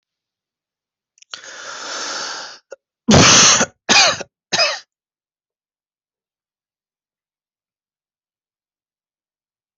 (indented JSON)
{
  "expert_labels": [
    {
      "quality": "good",
      "cough_type": "dry",
      "dyspnea": false,
      "wheezing": false,
      "stridor": false,
      "choking": false,
      "congestion": false,
      "nothing": true,
      "diagnosis": "healthy cough",
      "severity": "pseudocough/healthy cough"
    }
  ],
  "age": 40,
  "gender": "male",
  "respiratory_condition": false,
  "fever_muscle_pain": false,
  "status": "healthy"
}